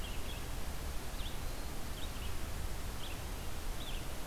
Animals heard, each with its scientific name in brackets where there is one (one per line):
Red-eyed Vireo (Vireo olivaceus)